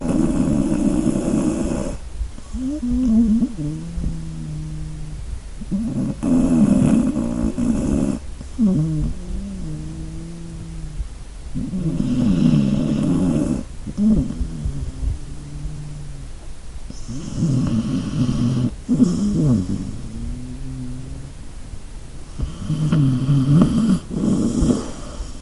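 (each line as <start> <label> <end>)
0.1 Someone is snoring with a deep, rhythmic nasal sound that repeats steadily. 25.4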